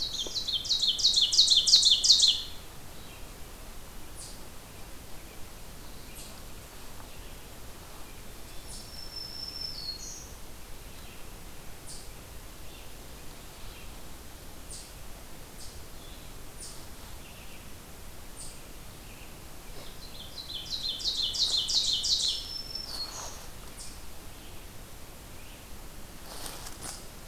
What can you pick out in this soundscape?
Black-throated Green Warbler, Ovenbird, Red-eyed Vireo, Eastern Chipmunk